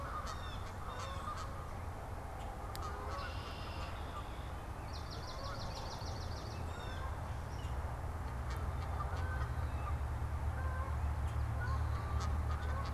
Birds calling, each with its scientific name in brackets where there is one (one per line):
Canada Goose (Branta canadensis)
Red-winged Blackbird (Agelaius phoeniceus)
Blue Jay (Cyanocitta cristata)
Swamp Sparrow (Melospiza georgiana)